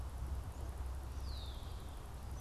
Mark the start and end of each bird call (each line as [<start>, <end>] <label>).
[1.13, 1.93] Red-winged Blackbird (Agelaius phoeniceus)